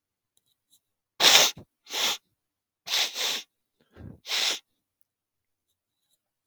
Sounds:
Sniff